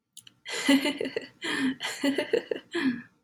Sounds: Laughter